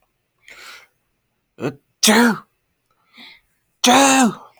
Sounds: Sneeze